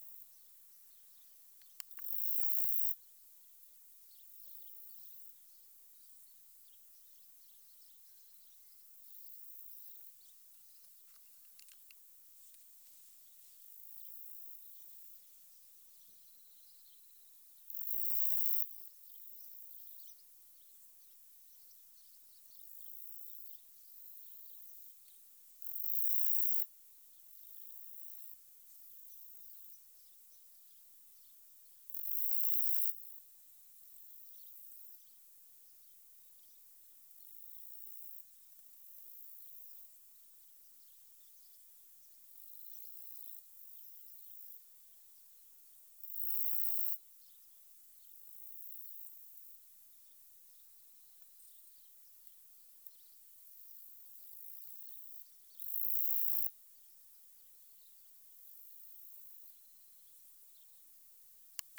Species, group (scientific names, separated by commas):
Saga hellenica, Orthoptera